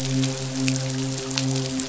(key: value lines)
label: biophony, midshipman
recorder: SoundTrap 500